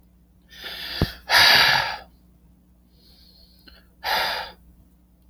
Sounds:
Sigh